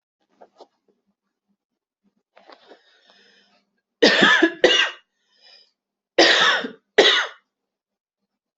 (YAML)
expert_labels:
- quality: good
  cough_type: dry
  dyspnea: false
  wheezing: false
  stridor: false
  choking: false
  congestion: false
  nothing: true
  diagnosis: COVID-19
  severity: mild
age: 33
gender: female
respiratory_condition: true
fever_muscle_pain: false
status: symptomatic